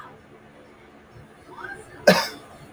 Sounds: Cough